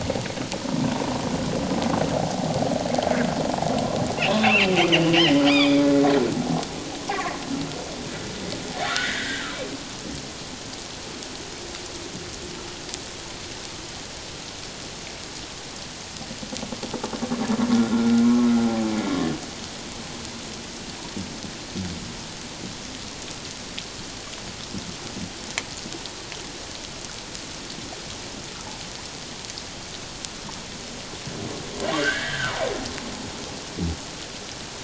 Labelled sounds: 4.4	5.8	humpback whale, 1.0 to 5.0 kHz
8.8	9.5	humpback whale, 1.3 to 2.1 kHz
17.7	18.6	humpback whale, 1.2 to 1.5 kHz
32.0	32.6	humpback whale, 1.2 to 2.0 kHz

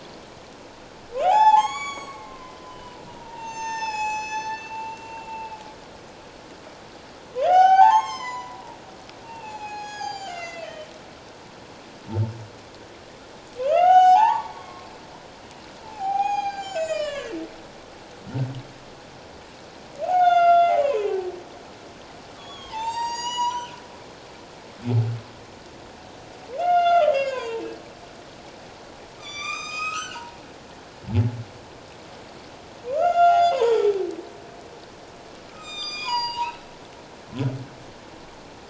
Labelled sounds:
1.2	5.3	humpback whale, 0.78 to 8.0 kHz
7.4	8.8	humpback whale, 0.78 to 7.6 kHz
9.2	10.9	humpback whale, 0.78 to 7.2 kHz
13.6	14.9	humpback whale, 0.78 to 7.5 kHz
15.8	17.3	humpback whale, 0.78 to 8.0 kHz
20.1	21.1	humpback whale, 0.78 to 6.6 kHz
22.3	23.7	humpback whale, 0.81 to 7.8 kHz
26.6	27.6	humpback whale, 0.88 to 6.3 kHz
29.2	30.4	humpback whale, 0.81 to 7.7 kHz
32.9	33.8	humpback whale, 0.78 to 7.1 kHz
35.5	36.6	humpback whale, 0.84 to 7.6 kHz

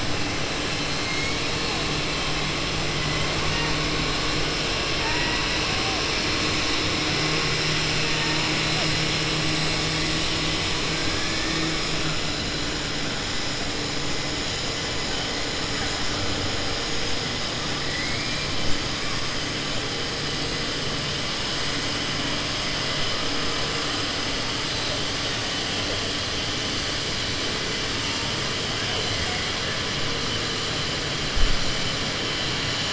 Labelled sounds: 1.0	1.4	killer whale, southern resident, 1.7 to 3.2 kHz

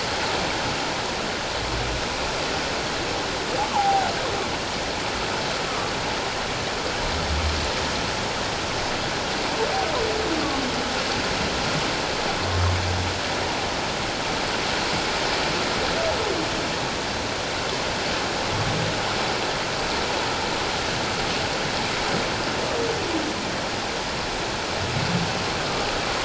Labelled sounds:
3.6	4.1	humpback whale, 0.78 to 1.2 kHz
5.6	5.9	humpback whale, 1.1 to 1.3 kHz
25.6	25.9	humpback whale, 1.16 to 1.25 kHz

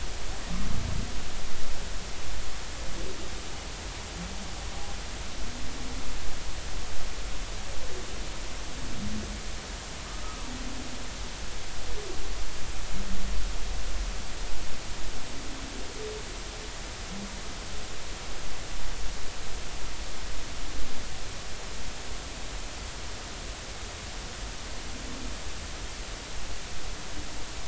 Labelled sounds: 10.2	10.5	humpback whale, 0.90 to 1.3 kHz

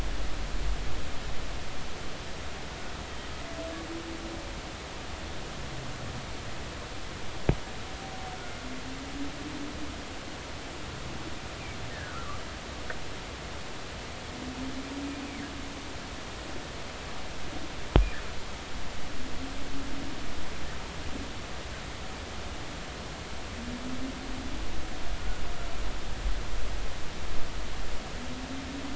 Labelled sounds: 11.9	12.4	humpback whale, 1.1 to 1.9 kHz

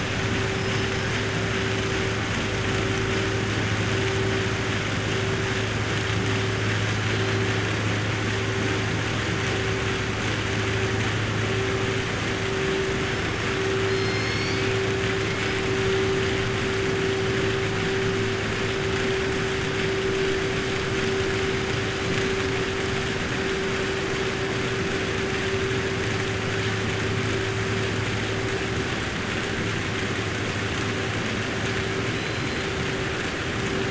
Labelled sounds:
13.8	14.7	killer whale, 2.2 to 6.6 kHz
32.1	32.6	killer whale, 3.9 to 5.1 kHz

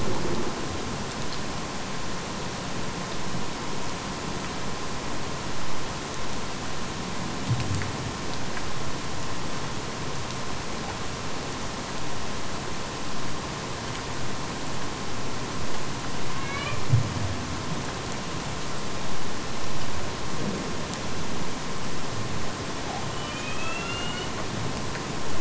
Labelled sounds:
16.2	17.0	killer whale, Bigg's (transient), AT1 transient, 0.95 to 4.8 kHz
22.7	24.4	killer whale, Bigg's (transient), AT1 transient, 1.1 to 4.5 kHz

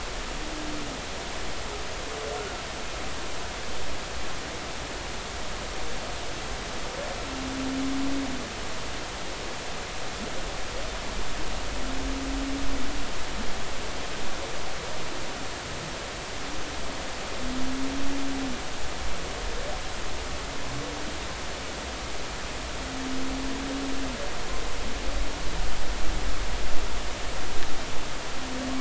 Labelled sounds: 2.4	2.6	humpback whale, 1.3 to 1.5 kHz

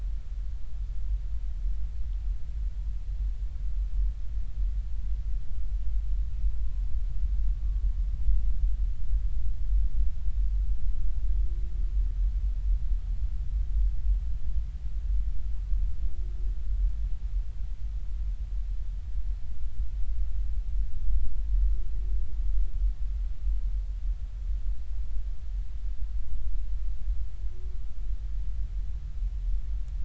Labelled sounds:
6.5	6.8	humpback whale, 0.99 to 1.1 kHz
7.5	7.8	humpback whale, 1.1 to 1.2 kHz

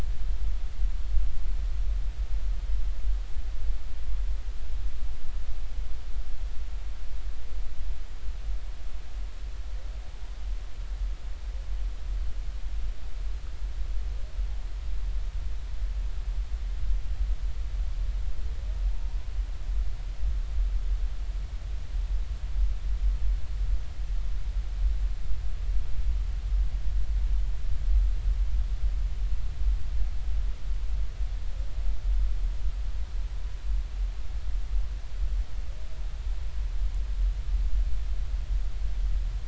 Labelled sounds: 18.9	19.2	humpback whale, 0.86 to 0.99 kHz

